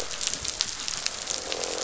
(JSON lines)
{"label": "biophony, croak", "recorder": "SoundTrap 500"}